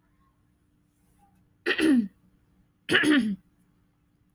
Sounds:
Throat clearing